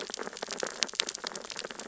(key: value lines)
label: biophony, sea urchins (Echinidae)
recorder: SoundTrap 600 or HydroMoth